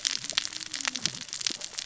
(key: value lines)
label: biophony, cascading saw
recorder: SoundTrap 600 or HydroMoth